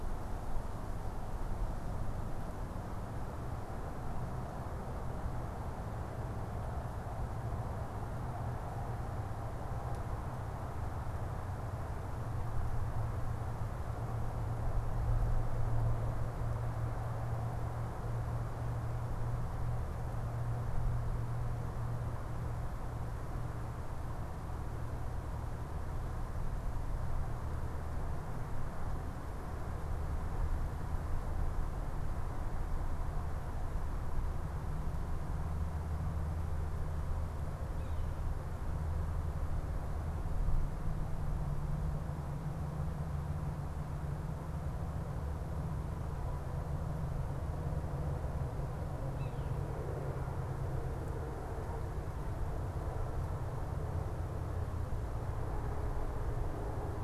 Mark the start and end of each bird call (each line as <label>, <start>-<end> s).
Yellow-bellied Sapsucker (Sphyrapicus varius), 37.6-38.2 s
Yellow-bellied Sapsucker (Sphyrapicus varius), 49.0-49.6 s